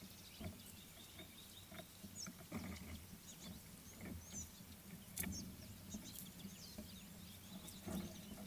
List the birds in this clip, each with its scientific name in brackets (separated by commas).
Gabar Goshawk (Micronisus gabar)